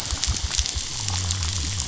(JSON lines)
{"label": "biophony", "recorder": "SoundTrap 500"}